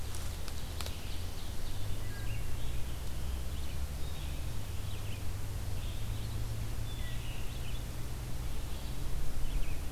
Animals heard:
Ovenbird (Seiurus aurocapilla)
Wood Thrush (Hylocichla mustelina)
Red-eyed Vireo (Vireo olivaceus)

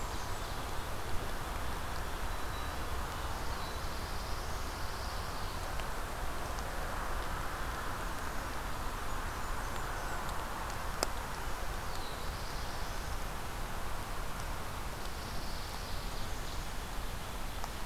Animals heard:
Pine Warbler (Setophaga pinus)
Black-throated Blue Warbler (Setophaga caerulescens)
Black-capped Chickadee (Poecile atricapillus)
Ovenbird (Seiurus aurocapilla)
Blackburnian Warbler (Setophaga fusca)

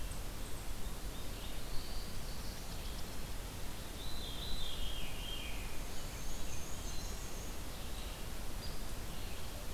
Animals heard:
Black-and-white Warbler (Mniotilta varia)
Veery (Catharus fuscescens)
Black-throated Blue Warbler (Setophaga caerulescens)
Red-eyed Vireo (Vireo olivaceus)

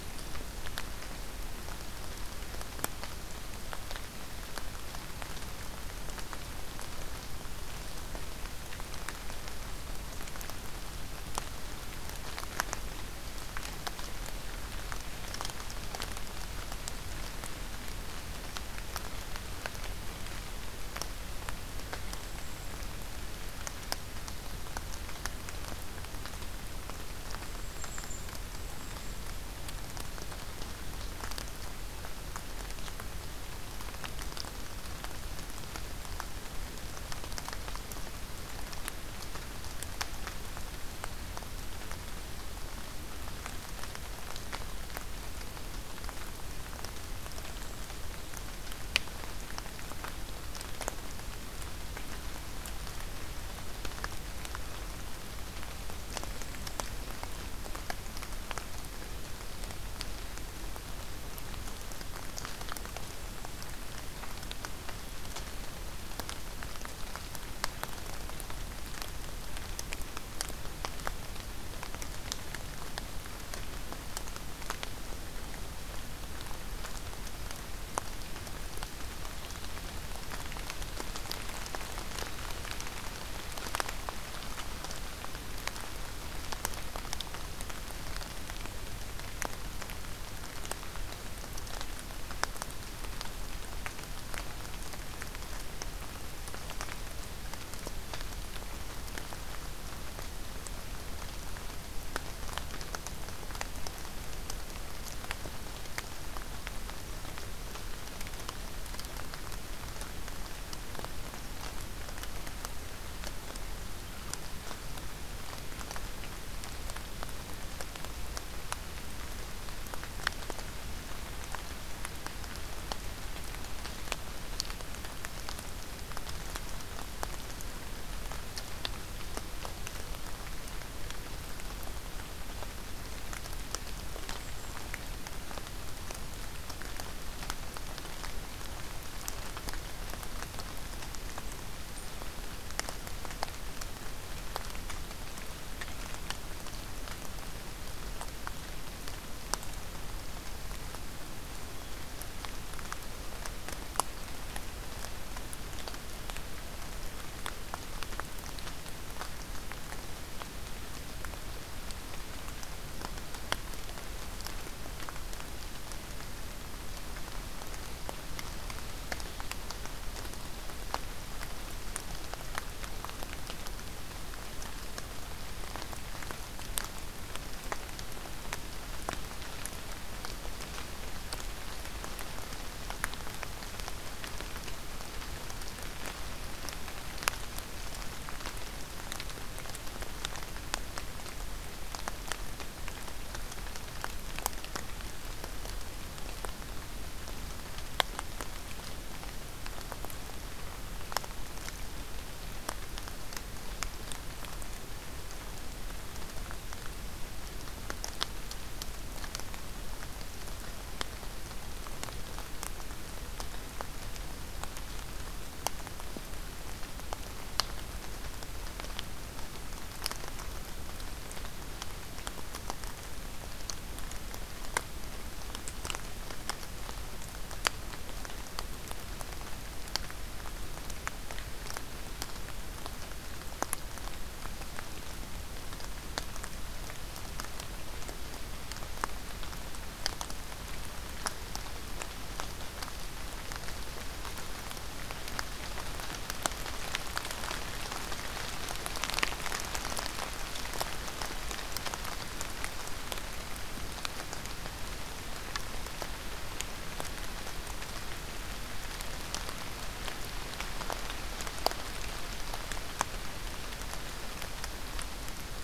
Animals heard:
Golden-crowned Kinglet (Regulus satrapa)

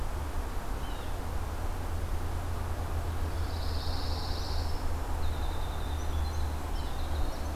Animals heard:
Blue Jay (Cyanocitta cristata)
Pine Warbler (Setophaga pinus)
Winter Wren (Troglodytes hiemalis)

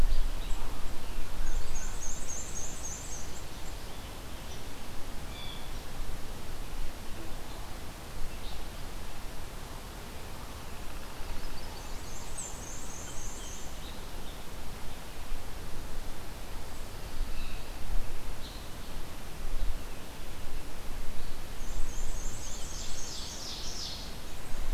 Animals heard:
Chestnut-sided Warbler (Setophaga pensylvanica)
Pine Warbler (Setophaga pinus)
Ovenbird (Seiurus aurocapilla)
Black-and-white Warbler (Mniotilta varia)
Blue Jay (Cyanocitta cristata)

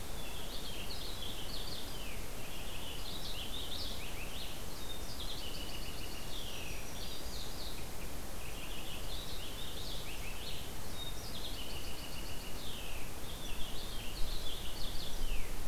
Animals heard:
Purple Finch (Haemorhous purpureus)

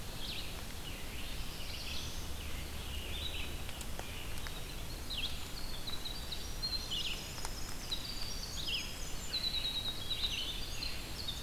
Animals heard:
Winter Wren (Troglodytes hiemalis)
Black-throated Blue Warbler (Setophaga caerulescens)
Red-eyed Vireo (Vireo olivaceus)

